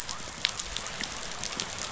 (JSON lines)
{"label": "biophony", "recorder": "SoundTrap 500"}